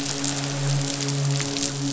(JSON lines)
{"label": "biophony, midshipman", "recorder": "SoundTrap 500"}